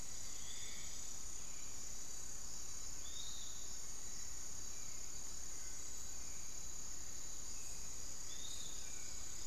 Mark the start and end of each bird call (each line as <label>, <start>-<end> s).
Hauxwell's Thrush (Turdus hauxwelli), 0.0-9.5 s
Piratic Flycatcher (Legatus leucophaius), 0.0-9.5 s